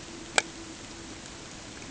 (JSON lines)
{"label": "ambient", "recorder": "HydroMoth"}